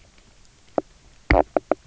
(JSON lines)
{"label": "biophony, knock croak", "recorder": "SoundTrap 300"}